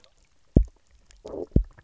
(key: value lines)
label: biophony, double pulse
recorder: SoundTrap 300